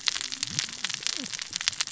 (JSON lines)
{"label": "biophony, cascading saw", "recorder": "SoundTrap 600 or HydroMoth"}